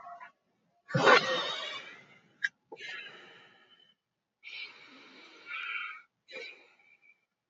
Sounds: Sigh